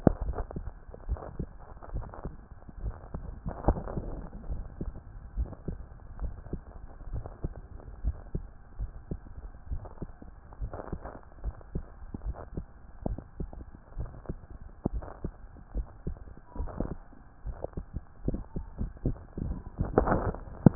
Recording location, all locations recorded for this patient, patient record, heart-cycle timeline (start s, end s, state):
tricuspid valve (TV)
pulmonary valve (PV)+tricuspid valve (TV)+mitral valve (MV)
#Age: Child
#Sex: Male
#Height: 133.0 cm
#Weight: 28.2 kg
#Pregnancy status: False
#Murmur: Absent
#Murmur locations: nan
#Most audible location: nan
#Systolic murmur timing: nan
#Systolic murmur shape: nan
#Systolic murmur grading: nan
#Systolic murmur pitch: nan
#Systolic murmur quality: nan
#Diastolic murmur timing: nan
#Diastolic murmur shape: nan
#Diastolic murmur grading: nan
#Diastolic murmur pitch: nan
#Diastolic murmur quality: nan
#Outcome: Normal
#Campaign: 2014 screening campaign
0.00	4.48	unannotated
4.48	4.62	S1
4.62	4.82	systole
4.82	4.92	S2
4.92	5.36	diastole
5.36	5.50	S1
5.50	5.68	systole
5.68	5.78	S2
5.78	6.20	diastole
6.20	6.32	S1
6.32	6.52	systole
6.52	6.60	S2
6.60	7.12	diastole
7.12	7.24	S1
7.24	7.42	systole
7.42	7.54	S2
7.54	8.04	diastole
8.04	8.16	S1
8.16	8.34	systole
8.34	8.44	S2
8.44	8.80	diastole
8.80	8.90	S1
8.90	9.10	systole
9.10	9.20	S2
9.20	9.70	diastole
9.70	9.82	S1
9.82	10.02	systole
10.02	10.10	S2
10.10	10.60	diastole
10.60	10.72	S1
10.72	10.92	systole
10.92	11.00	S2
11.00	11.44	diastole
11.44	11.54	S1
11.54	11.74	systole
11.74	11.84	S2
11.84	12.24	diastole
12.24	12.36	S1
12.36	12.56	systole
12.56	12.64	S2
12.64	13.06	diastole
13.06	13.18	S1
13.18	13.40	systole
13.40	13.50	S2
13.50	13.98	diastole
13.98	14.10	S1
14.10	14.28	systole
14.28	14.38	S2
14.38	14.92	diastole
14.92	15.04	S1
15.04	15.24	systole
15.24	15.32	S2
15.32	15.74	diastole
15.74	15.86	S1
15.86	16.06	systole
16.06	16.16	S2
16.16	16.58	diastole
16.58	16.70	S1
16.70	16.82	systole
16.82	16.96	S2
16.96	17.46	diastole
17.46	20.75	unannotated